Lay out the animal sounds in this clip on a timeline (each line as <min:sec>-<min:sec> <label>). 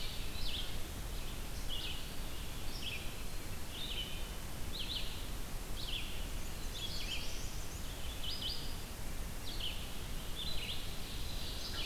0:00.0-0:00.5 Ovenbird (Seiurus aurocapilla)
0:00.0-0:11.9 Red-eyed Vireo (Vireo olivaceus)
0:01.9-0:03.7 Eastern Wood-Pewee (Contopus virens)
0:06.5-0:07.9 Black-and-white Warbler (Mniotilta varia)
0:06.5-0:07.7 Black-throated Blue Warbler (Setophaga caerulescens)
0:10.6-0:11.9 Ovenbird (Seiurus aurocapilla)